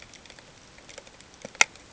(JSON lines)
{"label": "ambient", "recorder": "HydroMoth"}